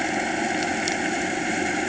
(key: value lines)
label: anthrophony, boat engine
recorder: HydroMoth